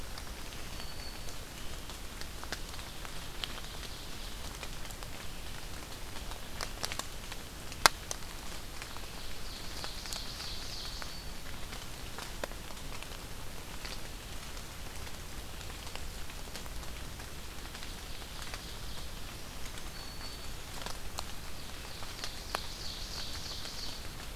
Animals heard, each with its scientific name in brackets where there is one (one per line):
Ovenbird (Seiurus aurocapilla)
Black-throated Green Warbler (Setophaga virens)